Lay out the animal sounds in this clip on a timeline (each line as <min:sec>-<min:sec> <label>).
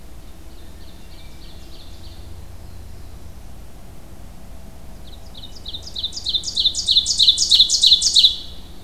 0:00.0-0:02.4 Ovenbird (Seiurus aurocapilla)
0:02.2-0:03.6 Black-throated Blue Warbler (Setophaga caerulescens)
0:05.0-0:08.7 Ovenbird (Seiurus aurocapilla)